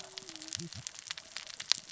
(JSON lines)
{"label": "biophony, cascading saw", "recorder": "SoundTrap 600 or HydroMoth"}